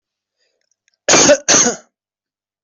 {"expert_labels": [{"quality": "ok", "cough_type": "dry", "dyspnea": false, "wheezing": false, "stridor": false, "choking": false, "congestion": false, "nothing": true, "diagnosis": "upper respiratory tract infection", "severity": "unknown"}], "age": 22, "gender": "male", "respiratory_condition": false, "fever_muscle_pain": false, "status": "healthy"}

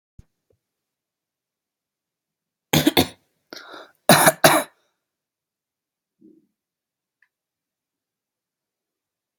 {"expert_labels": [{"quality": "good", "cough_type": "dry", "dyspnea": false, "wheezing": false, "stridor": false, "choking": false, "congestion": false, "nothing": true, "diagnosis": "upper respiratory tract infection", "severity": "mild"}], "age": 18, "gender": "male", "respiratory_condition": false, "fever_muscle_pain": false, "status": "symptomatic"}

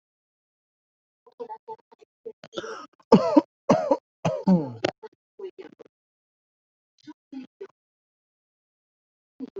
{"expert_labels": [{"quality": "poor", "cough_type": "unknown", "dyspnea": false, "wheezing": false, "stridor": false, "choking": false, "congestion": false, "nothing": true, "diagnosis": "lower respiratory tract infection", "severity": "mild"}], "age": 29, "gender": "male", "respiratory_condition": false, "fever_muscle_pain": false, "status": "COVID-19"}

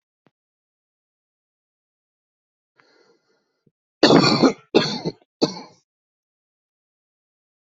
{"expert_labels": [{"quality": "good", "cough_type": "wet", "dyspnea": false, "wheezing": false, "stridor": false, "choking": false, "congestion": false, "nothing": true, "diagnosis": "obstructive lung disease", "severity": "mild"}], "age": 38, "gender": "male", "respiratory_condition": false, "fever_muscle_pain": false, "status": "symptomatic"}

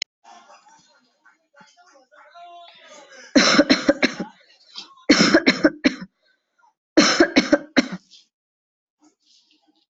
{"expert_labels": [{"quality": "ok", "cough_type": "dry", "dyspnea": false, "wheezing": false, "stridor": false, "choking": false, "congestion": false, "nothing": true, "diagnosis": "healthy cough", "severity": "pseudocough/healthy cough"}]}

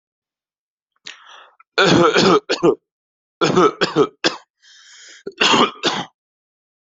{"expert_labels": [{"quality": "good", "cough_type": "wet", "dyspnea": false, "wheezing": false, "stridor": false, "choking": false, "congestion": false, "nothing": true, "diagnosis": "lower respiratory tract infection", "severity": "mild"}], "age": 30, "gender": "other", "respiratory_condition": true, "fever_muscle_pain": false, "status": "healthy"}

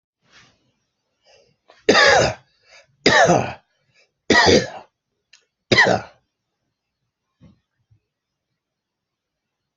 {"expert_labels": [{"quality": "good", "cough_type": "wet", "dyspnea": false, "wheezing": false, "stridor": false, "choking": false, "congestion": false, "nothing": true, "diagnosis": "obstructive lung disease", "severity": "mild"}], "age": 56, "gender": "male", "respiratory_condition": false, "fever_muscle_pain": false, "status": "healthy"}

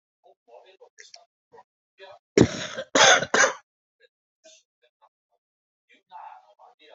{"expert_labels": [{"quality": "good", "cough_type": "wet", "dyspnea": false, "wheezing": false, "stridor": false, "choking": false, "congestion": false, "nothing": true, "diagnosis": "lower respiratory tract infection", "severity": "mild"}], "age": 62, "gender": "female", "respiratory_condition": false, "fever_muscle_pain": false, "status": "COVID-19"}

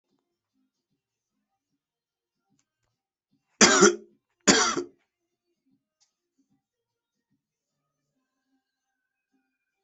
{"expert_labels": [{"quality": "good", "cough_type": "dry", "dyspnea": false, "wheezing": false, "stridor": false, "choking": false, "congestion": false, "nothing": true, "diagnosis": "upper respiratory tract infection", "severity": "mild"}], "age": 35, "gender": "male", "respiratory_condition": false, "fever_muscle_pain": false, "status": "symptomatic"}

